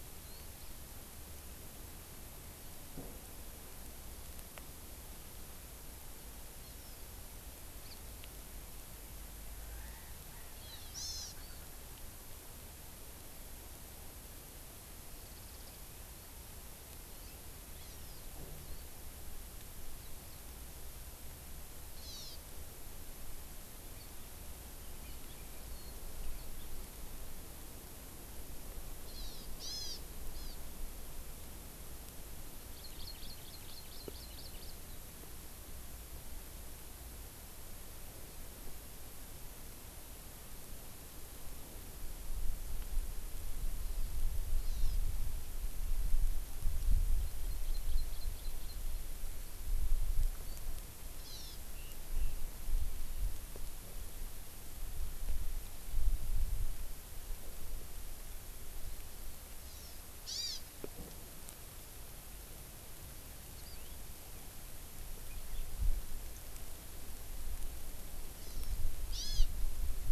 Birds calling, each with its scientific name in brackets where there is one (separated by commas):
Hawaii Amakihi (Chlorodrepanis virens), Erckel's Francolin (Pternistis erckelii), Warbling White-eye (Zosterops japonicus)